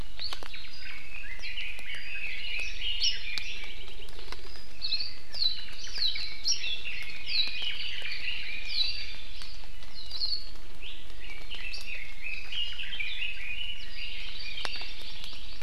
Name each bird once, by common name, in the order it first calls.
Iiwi, Red-billed Leiothrix, Hawaii Creeper, Warbling White-eye, Hawaii Amakihi